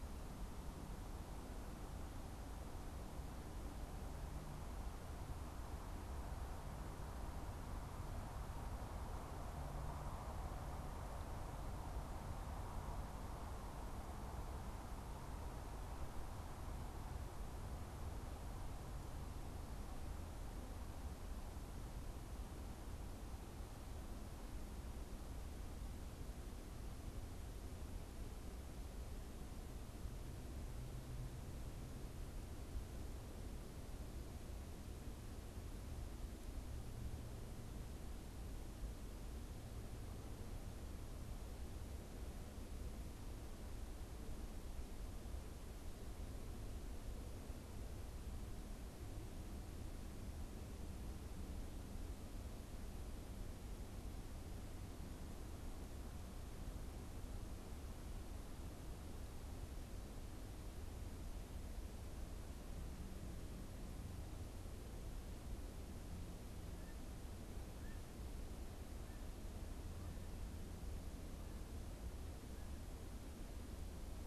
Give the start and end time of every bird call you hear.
66.6s-74.3s: Canada Goose (Branta canadensis)

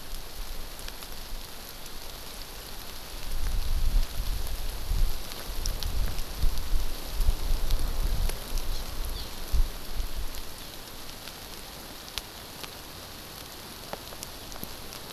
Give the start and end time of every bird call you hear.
8.7s-8.8s: Hawaii Amakihi (Chlorodrepanis virens)
9.1s-9.3s: Eurasian Skylark (Alauda arvensis)

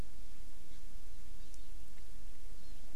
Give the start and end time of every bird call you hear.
2.6s-2.8s: Hawaii Amakihi (Chlorodrepanis virens)

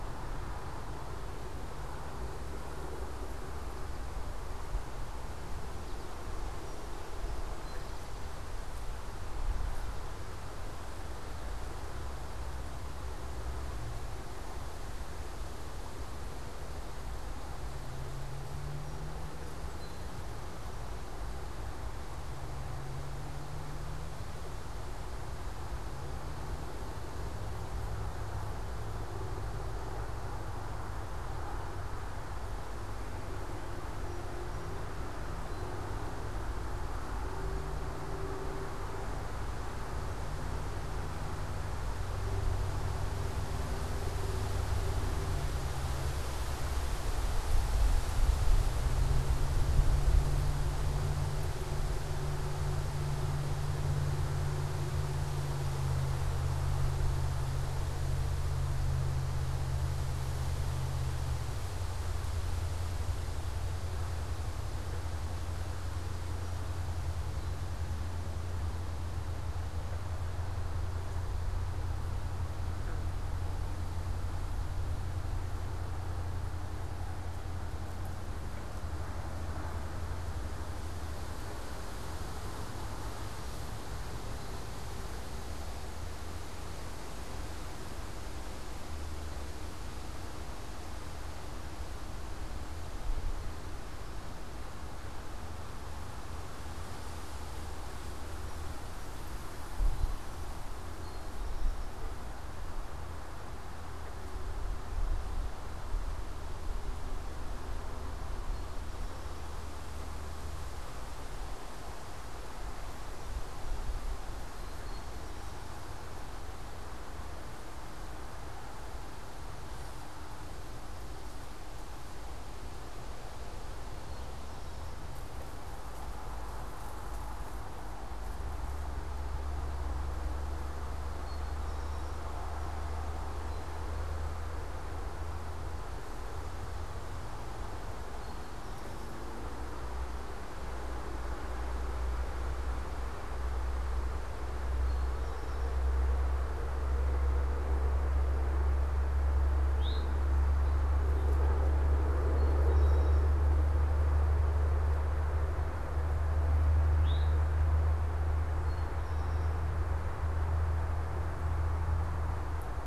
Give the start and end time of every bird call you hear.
3.8s-6.2s: American Goldfinch (Spinus tristis)
6.5s-8.3s: Song Sparrow (Melospiza melodia)
18.9s-20.9s: Song Sparrow (Melospiza melodia)
33.9s-35.8s: Song Sparrow (Melospiza melodia)
66.2s-68.0s: Song Sparrow (Melospiza melodia)
98.4s-102.0s: Song Sparrow (Melospiza melodia)
100.9s-102.2s: Eastern Towhee (Pipilo erythrophthalmus)
108.4s-109.6s: Song Sparrow (Melospiza melodia)
113.6s-116.0s: Song Sparrow (Melospiza melodia)
123.9s-125.0s: Eastern Towhee (Pipilo erythrophthalmus)
130.9s-134.4s: Eastern Towhee (Pipilo erythrophthalmus)
137.9s-139.3s: Eastern Towhee (Pipilo erythrophthalmus)
144.6s-145.8s: Eastern Towhee (Pipilo erythrophthalmus)
149.7s-150.2s: Eastern Towhee (Pipilo erythrophthalmus)
152.1s-153.4s: Eastern Towhee (Pipilo erythrophthalmus)
156.8s-157.5s: Eastern Towhee (Pipilo erythrophthalmus)
158.4s-159.5s: Eastern Towhee (Pipilo erythrophthalmus)

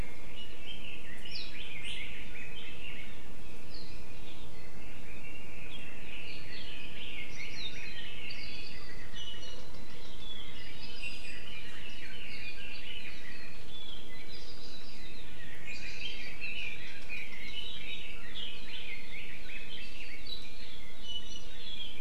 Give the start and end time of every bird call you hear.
0.3s-3.1s: Red-billed Leiothrix (Leiothrix lutea)
4.5s-8.8s: Red-billed Leiothrix (Leiothrix lutea)
9.1s-9.6s: Apapane (Himatione sanguinea)
10.2s-13.6s: Red-billed Leiothrix (Leiothrix lutea)
15.4s-20.7s: Red-billed Leiothrix (Leiothrix lutea)
21.0s-21.5s: Apapane (Himatione sanguinea)

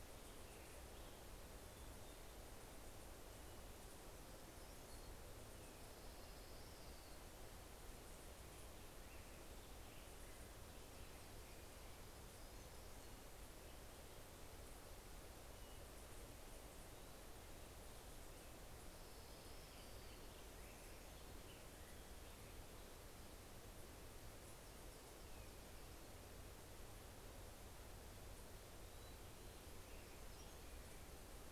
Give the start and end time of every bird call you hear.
0.0s-2.1s: Black-headed Grosbeak (Pheucticus melanocephalus)
5.7s-7.7s: Orange-crowned Warbler (Leiothlypis celata)
11.0s-13.8s: Hermit Warbler (Setophaga occidentalis)
17.2s-23.4s: Black-headed Grosbeak (Pheucticus melanocephalus)
18.4s-20.5s: Orange-crowned Warbler (Leiothlypis celata)
20.1s-22.0s: Hermit Warbler (Setophaga occidentalis)
28.9s-31.4s: Hermit Warbler (Setophaga occidentalis)

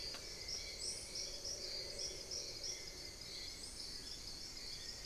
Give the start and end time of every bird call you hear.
0.0s-5.1s: Little Tinamou (Crypturellus soui)
0.3s-0.9s: Spot-winged Antshrike (Pygiptila stellaris)

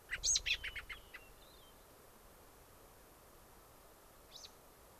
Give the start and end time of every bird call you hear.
0.1s-1.2s: American Robin (Turdus migratorius)
1.2s-1.9s: Hermit Thrush (Catharus guttatus)
4.3s-4.5s: American Robin (Turdus migratorius)

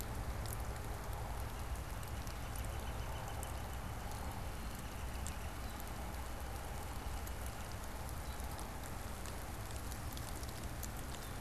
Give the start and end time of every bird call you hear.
1.1s-7.9s: Northern Flicker (Colaptes auratus)

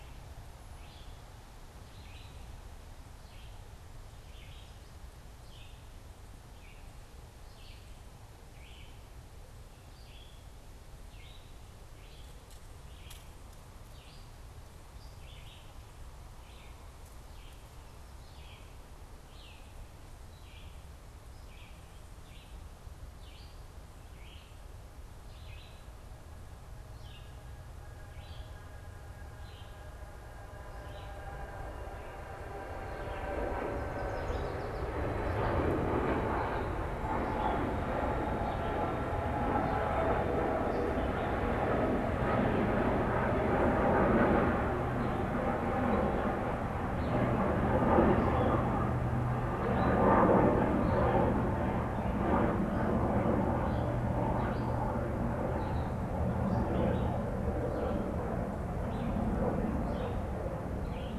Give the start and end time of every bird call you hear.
0.0s-31.3s: Red-eyed Vireo (Vireo olivaceus)
32.7s-61.2s: Red-eyed Vireo (Vireo olivaceus)
33.3s-35.1s: Yellow Warbler (Setophaga petechia)

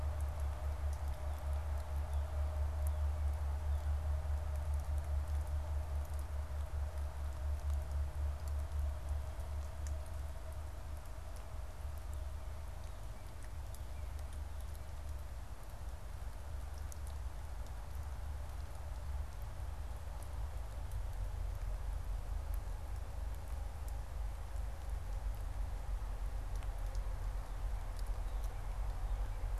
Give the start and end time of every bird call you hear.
0.9s-4.1s: Northern Cardinal (Cardinalis cardinalis)

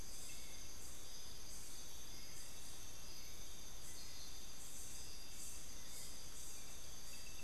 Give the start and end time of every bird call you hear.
0.0s-7.4s: Hauxwell's Thrush (Turdus hauxwelli)

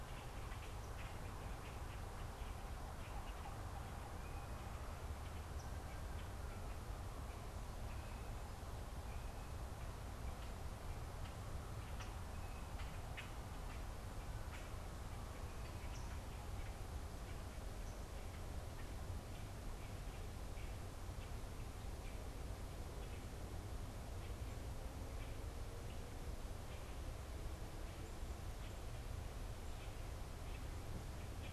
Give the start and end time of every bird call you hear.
0.0s-31.5s: Common Grackle (Quiscalus quiscula)
11.8s-16.2s: unidentified bird

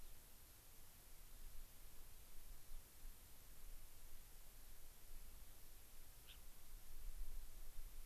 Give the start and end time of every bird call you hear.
6.2s-6.4s: Gray-crowned Rosy-Finch (Leucosticte tephrocotis)

